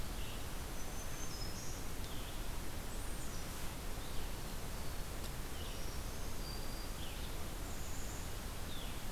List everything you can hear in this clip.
Red-eyed Vireo, Black-throated Green Warbler, Black-capped Chickadee